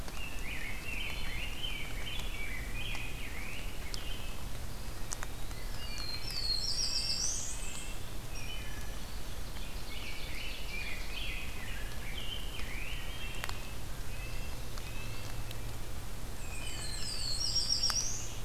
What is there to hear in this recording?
Rose-breasted Grosbeak, Eastern Wood-Pewee, Black-throated Blue Warbler, Black-and-white Warbler, Red-breasted Nuthatch, Ovenbird, Wood Thrush